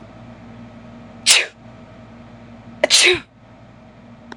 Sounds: Sneeze